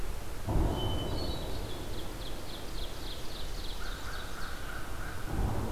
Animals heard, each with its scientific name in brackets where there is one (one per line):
Hermit Thrush (Catharus guttatus)
American Crow (Corvus brachyrhynchos)
Ovenbird (Seiurus aurocapilla)